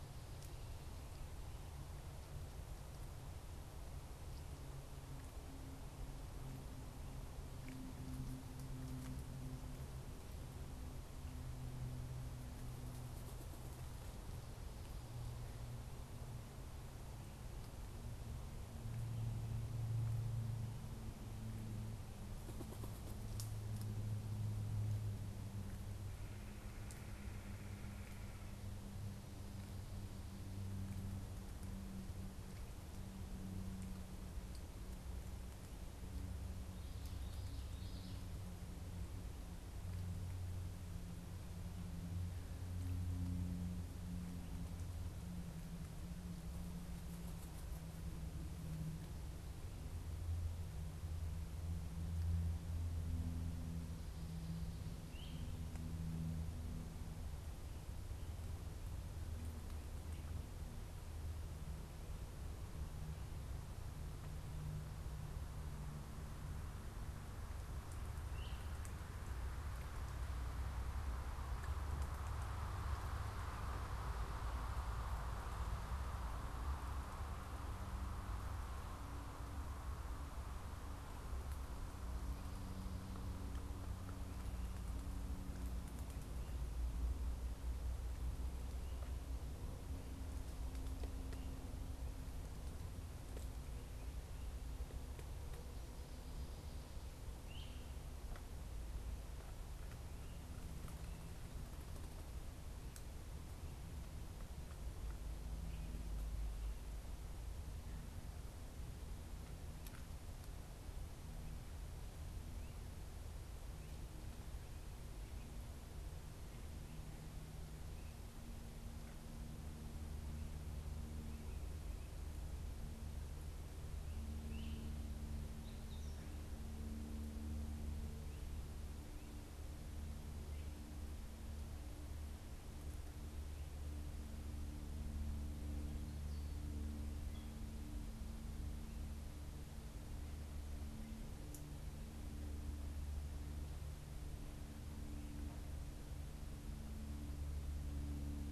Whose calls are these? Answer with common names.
Common Yellowthroat, Great Crested Flycatcher